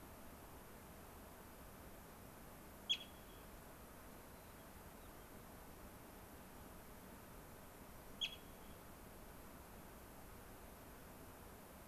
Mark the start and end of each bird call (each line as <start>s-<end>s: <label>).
4.3s-5.2s: White-crowned Sparrow (Zonotrichia leucophrys)